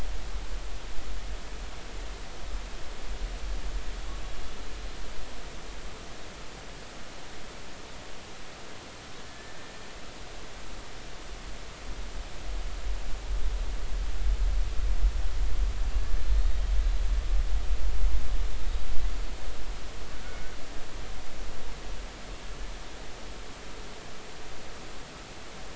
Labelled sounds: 9.2	9.7	killer whale, 1.7 to 1.9 kHz
16.4	16.6	killer whale, 3.6 to 3.8 kHz
18.6	18.9	killer whale, 3.7 to 3.9 kHz

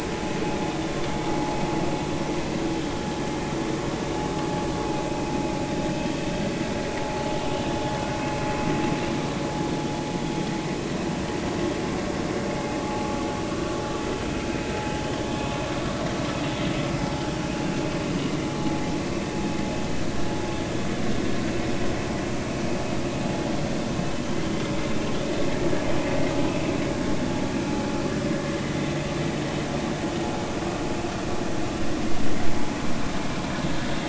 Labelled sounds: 26.5	26.7	vessel noise, 2.5 to 2.7 kHz

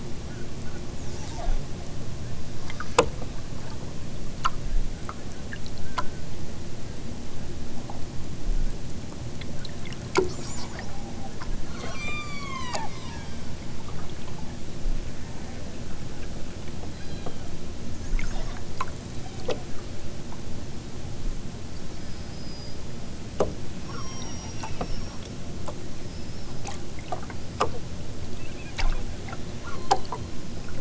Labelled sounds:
11.6	13.6	killer whale, southern Alaska resident, 0.64 to 8.0 kHz
16.9	17.5	killer whale, southern Alaska resident, 1.1 to 5.1 kHz
19.0	19.5	killer whale, southern Alaska resident, 1.8 to 4.3 kHz
21.9	22.9	killer whale, southern Alaska resident, 2.5 to 5.4 kHz
23.8	25.3	killer whale, southern Alaska resident, 0.83 to 6.7 kHz
29.6	30.2	killer whale, southern Alaska resident, 0.83 to 4.5 kHz

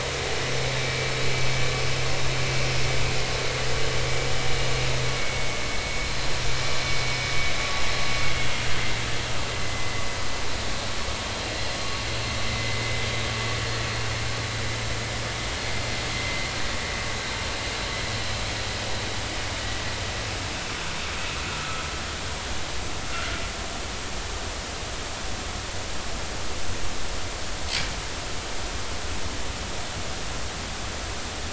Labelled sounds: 5.1	5.6	vessel noise, 2.2 to 2.3 kHz
9.6	10.0	vessel noise, 1.9 to 2.1 kHz
12.5	12.9	vessel noise, 2.0 to 2.1 kHz
16.1	16.5	vessel noise, 2.0 to 2.1 kHz
21.5	21.8	vessel noise, 1.2 to 1.5 kHz

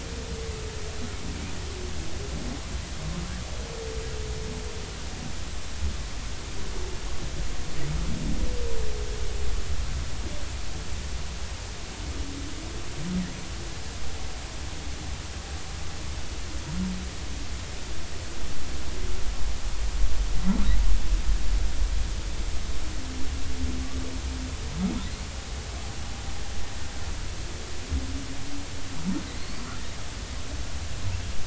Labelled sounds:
29.3	29.6	humpback whale, 3.9 to 4.5 kHz

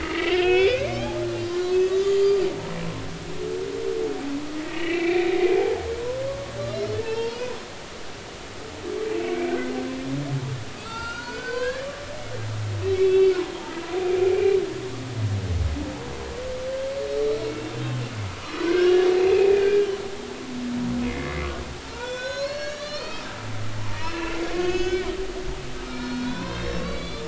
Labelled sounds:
0.0	2.3	humpback whale, 1.1 to 5.8 kHz
4.6	5.8	humpback whale, 0.80 to 2.8 kHz
6.6	7.6	humpback whale, 0.83 to 4.3 kHz
9.1	9.7	humpback whale, 1.4 to 2.9 kHz
10.8	12.3	humpback whale, 0.83 to 7.7 kHz
13.0	13.3	humpback whale, 2.6 to 3.5 kHz
14.3	14.6	humpback whale, 2.3 to 2.5 kHz
18.4	19.0	humpback whale, 1.4 to 4.1 kHz
19.3	19.9	humpback whale, 1.5 to 2.7 kHz
21.1	21.5	humpback whale, 2.0 to 2.2 kHz
21.8	23.3	humpback whale, 0.86 to 7.6 kHz
23.8	25.1	humpback whale, 0.86 to 6.5 kHz
25.8	27.2	humpback whale, 0.93 to 5.5 kHz

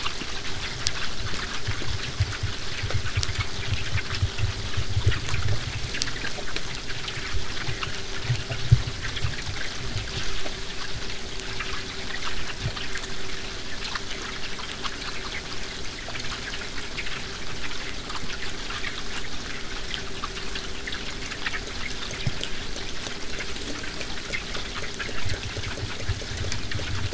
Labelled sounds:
17.1	22.1	vessel noise, 0 to 8.0 kHz

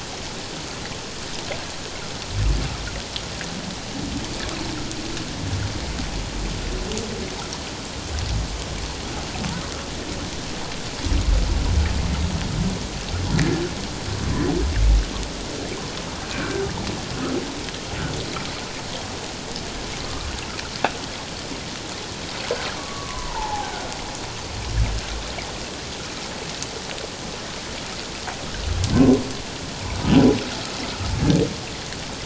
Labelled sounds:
16.3	16.7	humpback whale, 1.3 to 2.6 kHz
22.8	23.8	humpback whale, 0.78 to 1.2 kHz
28.9	29.2	humpback whale, 0.97 to 1.1 kHz

